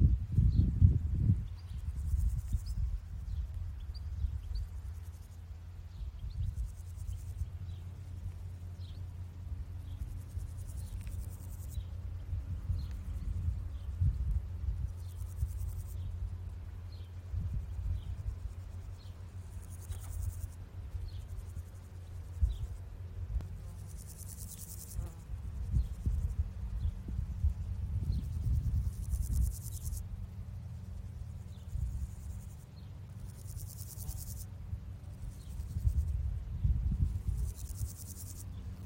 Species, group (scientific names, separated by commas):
Pseudochorthippus parallelus, Orthoptera